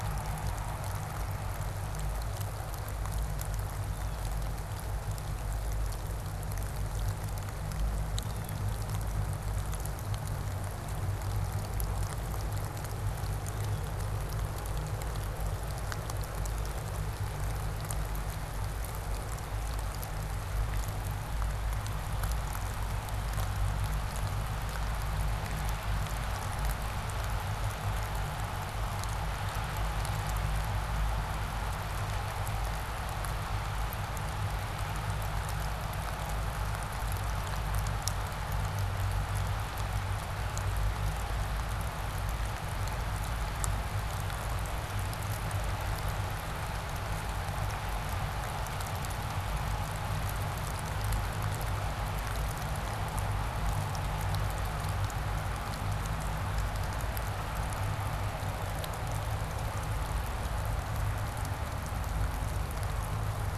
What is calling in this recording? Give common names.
Blue Jay